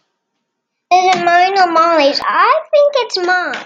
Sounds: Laughter